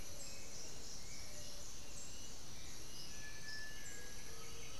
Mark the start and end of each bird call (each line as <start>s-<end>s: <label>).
0.0s-4.3s: Bluish-fronted Jacamar (Galbula cyanescens)
0.0s-4.8s: Black-billed Thrush (Turdus ignobilis)
3.0s-4.8s: Cinereous Tinamou (Crypturellus cinereus)
4.0s-4.8s: White-winged Becard (Pachyramphus polychopterus)
4.2s-4.8s: Undulated Tinamou (Crypturellus undulatus)